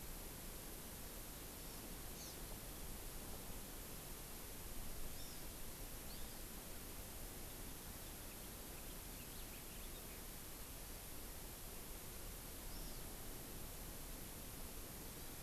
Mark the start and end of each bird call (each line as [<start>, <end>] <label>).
[2.12, 2.42] Hawaii Amakihi (Chlorodrepanis virens)
[5.12, 5.52] Hawaii Amakihi (Chlorodrepanis virens)
[6.02, 6.42] Hawaii Amakihi (Chlorodrepanis virens)
[7.92, 10.32] House Finch (Haemorhous mexicanus)
[12.62, 13.02] Hawaii Amakihi (Chlorodrepanis virens)